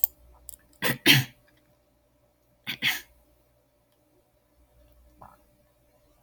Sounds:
Throat clearing